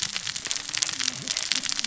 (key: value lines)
label: biophony, cascading saw
recorder: SoundTrap 600 or HydroMoth